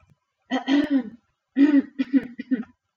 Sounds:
Throat clearing